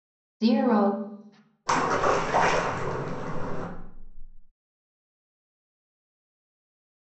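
At 0.42 seconds, someone says "zero." Then at 1.66 seconds, you can hear splashing.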